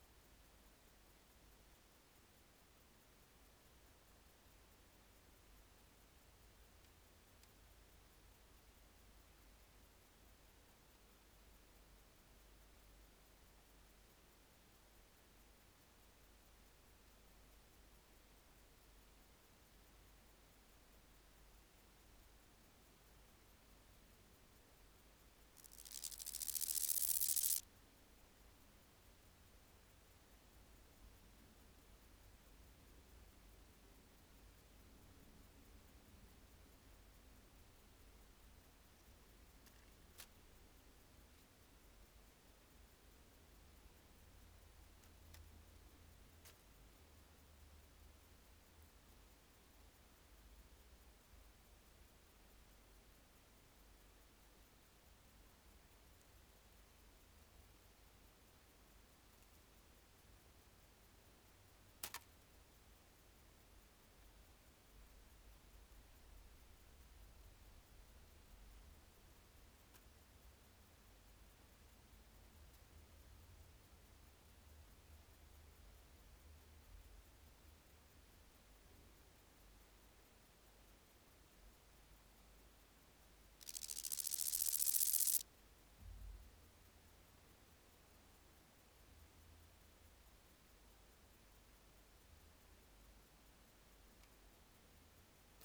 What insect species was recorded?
Omocestus raymondi